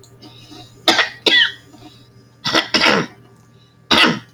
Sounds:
Throat clearing